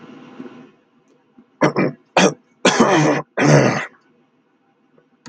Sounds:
Throat clearing